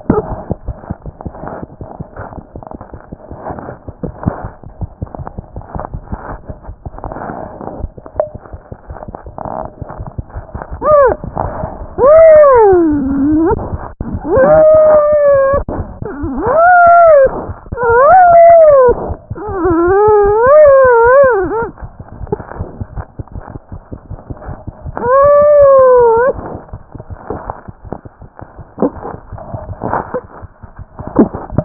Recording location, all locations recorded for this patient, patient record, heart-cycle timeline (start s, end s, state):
mitral valve (MV)
aortic valve (AV)+mitral valve (MV)
#Age: Infant
#Sex: Male
#Height: 52.0 cm
#Weight: nan
#Pregnancy status: False
#Murmur: Absent
#Murmur locations: nan
#Most audible location: nan
#Systolic murmur timing: nan
#Systolic murmur shape: nan
#Systolic murmur grading: nan
#Systolic murmur pitch: nan
#Systolic murmur quality: nan
#Diastolic murmur timing: nan
#Diastolic murmur shape: nan
#Diastolic murmur grading: nan
#Diastolic murmur pitch: nan
#Diastolic murmur quality: nan
#Outcome: Abnormal
#Campaign: 2014 screening campaign
0.00	22.55	unannotated
22.55	22.58	diastole
22.58	22.68	S1
22.68	22.80	systole
22.80	22.86	S2
22.86	22.98	diastole
22.98	23.06	S1
23.06	23.18	systole
23.18	23.24	S2
23.24	23.36	diastole
23.36	23.44	S1
23.44	23.56	systole
23.56	23.62	S2
23.62	23.72	diastole
23.72	23.81	S1
23.81	23.92	systole
23.92	23.98	S2
23.98	24.12	diastole
24.12	24.20	S1
24.20	24.29	systole
24.29	24.34	S2
24.34	24.48	diastole
24.48	24.58	S1
24.58	24.68	systole
24.68	24.72	S2
24.72	24.86	diastole
24.86	31.65	unannotated